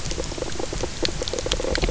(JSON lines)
{"label": "biophony, knock croak", "recorder": "SoundTrap 300"}